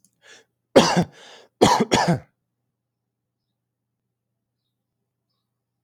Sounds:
Throat clearing